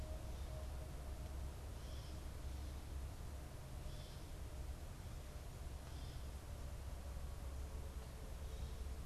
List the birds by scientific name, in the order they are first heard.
Dumetella carolinensis